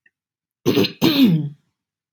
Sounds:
Throat clearing